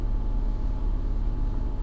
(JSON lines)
{"label": "anthrophony, boat engine", "recorder": "SoundTrap 300"}